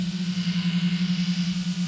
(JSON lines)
{"label": "anthrophony, boat engine", "recorder": "SoundTrap 500"}